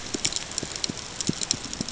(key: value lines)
label: ambient
recorder: HydroMoth